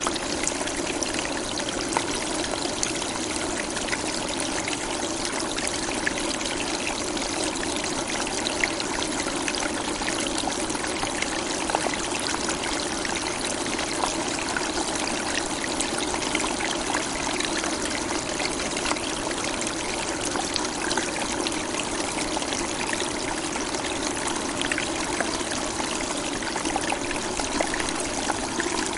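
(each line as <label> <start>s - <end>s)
Continuous mid-high pitched wind sound outdoors. 0.0s - 29.0s
A loud, constant, high-pitched pouring sound. 0.0s - 29.0s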